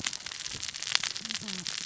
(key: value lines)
label: biophony, cascading saw
recorder: SoundTrap 600 or HydroMoth